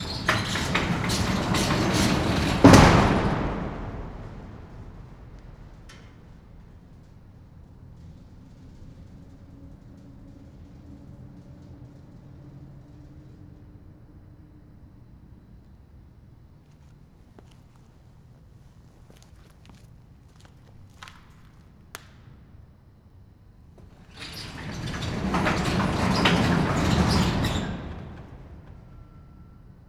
Is someone cheering?
no